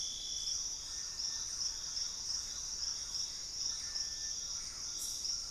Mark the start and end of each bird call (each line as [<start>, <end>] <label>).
[0.00, 5.51] Hauxwell's Thrush (Turdus hauxwelli)
[0.00, 5.51] Little Tinamou (Crypturellus soui)
[0.11, 5.51] Thrush-like Wren (Campylorhynchus turdinus)
[3.01, 5.01] Gray Antbird (Cercomacra cinerascens)
[4.21, 5.51] Collared Trogon (Trogon collaris)